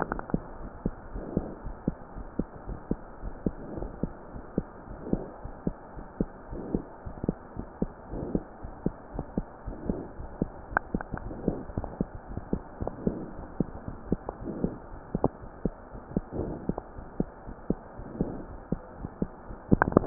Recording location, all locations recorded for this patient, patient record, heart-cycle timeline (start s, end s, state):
aortic valve (AV)
aortic valve (AV)+pulmonary valve (PV)+tricuspid valve (TV)+mitral valve (MV)
#Age: Child
#Sex: Female
#Height: 104.0 cm
#Weight: 20.4 kg
#Pregnancy status: False
#Murmur: Absent
#Murmur locations: nan
#Most audible location: nan
#Systolic murmur timing: nan
#Systolic murmur shape: nan
#Systolic murmur grading: nan
#Systolic murmur pitch: nan
#Systolic murmur quality: nan
#Diastolic murmur timing: nan
#Diastolic murmur shape: nan
#Diastolic murmur grading: nan
#Diastolic murmur pitch: nan
#Diastolic murmur quality: nan
#Outcome: Abnormal
#Campaign: 2015 screening campaign
0.00	0.42	unannotated
0.42	0.56	diastole
0.56	0.68	S1
0.68	0.84	systole
0.84	0.92	S2
0.92	1.12	diastole
1.12	1.20	S1
1.20	1.34	systole
1.34	1.40	S2
1.40	1.63	diastole
1.63	1.72	S1
1.72	1.84	systole
1.84	1.91	S2
1.91	2.16	diastole
2.16	2.26	S1
2.26	2.38	systole
2.38	2.45	S2
2.45	2.68	diastole
2.68	2.78	S1
2.78	2.90	systole
2.90	3.00	S2
3.00	3.24	diastole
3.24	3.34	S1
3.34	3.44	systole
3.44	3.53	S2
3.53	3.76	diastole
3.76	3.90	S1
3.90	4.01	systole
4.01	4.10	S2
4.10	4.33	diastole
4.33	4.40	S1
4.40	4.55	systole
4.55	4.63	S2
4.63	4.89	diastole
4.89	4.96	S1
4.96	5.10	systole
5.10	5.18	S2
5.18	5.43	diastole
5.43	5.52	S1
5.52	5.63	systole
5.63	5.70	S2
5.70	5.95	diastole
5.95	6.03	S1
6.03	6.19	systole
6.19	6.28	S2
6.28	6.49	diastole
6.49	6.57	S1
6.57	6.71	systole
6.71	6.80	S2
6.80	7.04	diastole
7.04	7.10	S1
7.10	7.27	systole
7.27	7.35	S2
7.35	7.56	diastole
7.56	7.64	S1
7.64	7.81	systole
7.81	7.88	S2
7.88	8.11	diastole
8.11	8.18	S1
8.18	8.33	systole
8.33	8.41	S2
8.41	8.62	diastole
8.62	8.70	S1
8.70	8.84	systole
8.84	8.92	S2
8.92	9.16	diastole
9.16	9.25	S1
9.25	9.36	systole
9.36	9.44	S2
9.44	9.65	diastole
9.65	9.74	S1
9.74	9.88	systole
9.88	9.95	S2
9.95	10.18	diastole
10.18	10.29	S1
10.29	10.39	systole
10.39	10.46	S2
10.46	10.70	diastole
10.70	20.06	unannotated